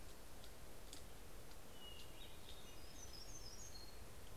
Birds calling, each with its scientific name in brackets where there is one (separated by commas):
Hermit Warbler (Setophaga occidentalis), Hermit Thrush (Catharus guttatus)